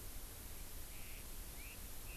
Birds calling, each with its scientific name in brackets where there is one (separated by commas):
Chinese Hwamei (Garrulax canorus)